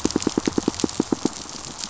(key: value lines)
label: biophony, pulse
recorder: SoundTrap 500